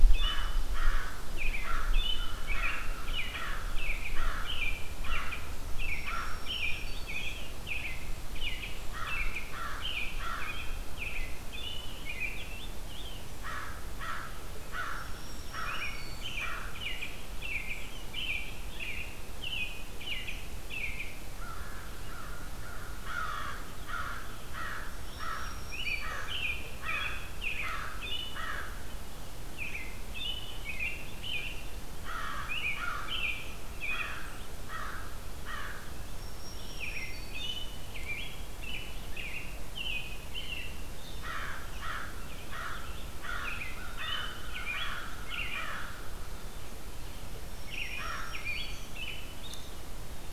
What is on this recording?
American Robin, Chimney Swift, American Crow, Black-throated Green Warbler